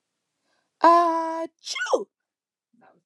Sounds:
Sneeze